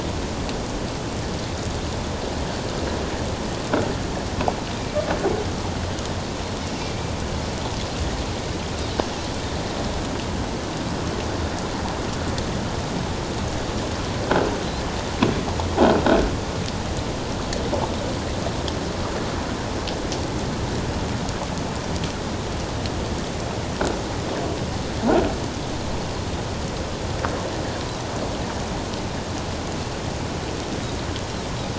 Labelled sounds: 6.8	7.1	Pacific white-sided dolphin, 2.2 to 2.4 kHz
16.0	16.3	croaking sound likely from a nearby submerged object, 1.4 to 1.7 kHz

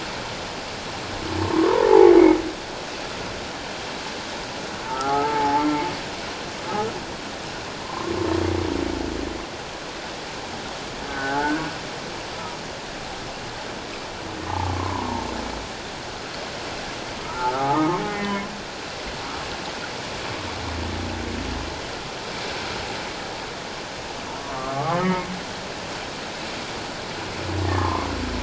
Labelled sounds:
1.4	1.9	humpback whale, 0.84 to 1.2 kHz
4.8	5.7	humpback whale, 0.78 to 1.4 kHz
7.8	8.1	humpback whale, 0.78 to 1.2 kHz
11.1	11.6	humpback whale, 0.78 to 1.7 kHz
14.7	15.1	humpback whale, 0.88 to 1.1 kHz
17.2	18.5	humpback whale, 0.78 to 2.1 kHz
24.5	25.2	humpback whale, 0.97 to 2.1 kHz
27.6	28.1	humpback whale, 0.84 to 1.9 kHz

